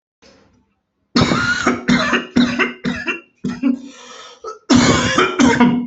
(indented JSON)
{
  "expert_labels": [
    {
      "quality": "good",
      "cough_type": "dry",
      "dyspnea": true,
      "wheezing": true,
      "stridor": false,
      "choking": false,
      "congestion": false,
      "nothing": false,
      "diagnosis": "obstructive lung disease",
      "severity": "mild"
    }
  ],
  "age": 36,
  "gender": "male",
  "respiratory_condition": true,
  "fever_muscle_pain": false,
  "status": "symptomatic"
}